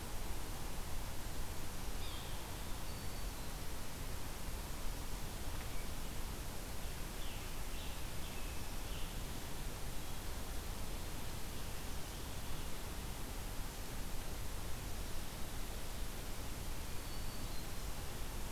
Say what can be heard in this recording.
Yellow-bellied Sapsucker, Black-throated Green Warbler, Scarlet Tanager